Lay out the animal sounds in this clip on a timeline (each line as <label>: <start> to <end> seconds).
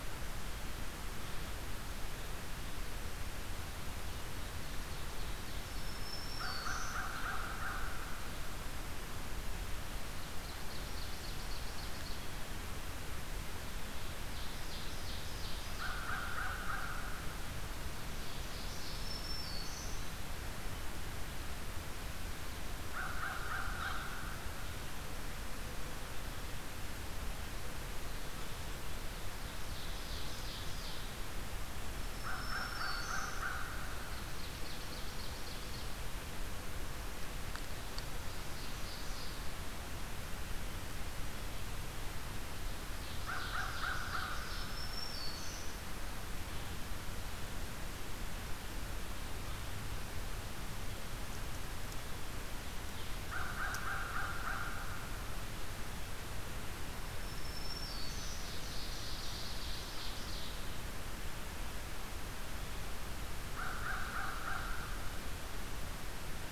Ovenbird (Seiurus aurocapilla): 3.5 to 6.0 seconds
Black-throated Green Warbler (Setophaga virens): 5.4 to 7.1 seconds
American Crow (Corvus brachyrhynchos): 6.0 to 8.0 seconds
Ovenbird (Seiurus aurocapilla): 10.0 to 12.2 seconds
Ovenbird (Seiurus aurocapilla): 13.6 to 16.4 seconds
American Crow (Corvus brachyrhynchos): 15.7 to 17.2 seconds
Ovenbird (Seiurus aurocapilla): 17.9 to 19.3 seconds
Black-throated Green Warbler (Setophaga virens): 18.7 to 20.0 seconds
American Crow (Corvus brachyrhynchos): 22.9 to 24.1 seconds
Ovenbird (Seiurus aurocapilla): 28.7 to 31.2 seconds
Black-throated Green Warbler (Setophaga virens): 31.9 to 33.5 seconds
American Crow (Corvus brachyrhynchos): 32.1 to 33.8 seconds
Ovenbird (Seiurus aurocapilla): 33.8 to 36.1 seconds
Ovenbird (Seiurus aurocapilla): 37.1 to 39.7 seconds
Ovenbird (Seiurus aurocapilla): 42.4 to 44.8 seconds
American Crow (Corvus brachyrhynchos): 43.0 to 44.6 seconds
Black-throated Green Warbler (Setophaga virens): 44.2 to 45.8 seconds
American Crow (Corvus brachyrhynchos): 53.1 to 55.2 seconds
Black-throated Green Warbler (Setophaga virens): 56.9 to 58.4 seconds
Ovenbird (Seiurus aurocapilla): 58.0 to 60.8 seconds
American Crow (Corvus brachyrhynchos): 63.4 to 64.9 seconds